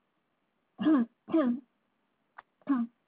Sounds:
Throat clearing